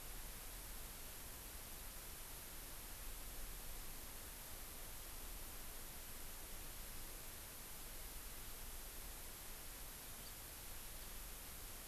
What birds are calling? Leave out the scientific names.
House Finch